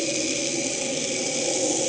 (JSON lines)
{"label": "anthrophony, boat engine", "recorder": "HydroMoth"}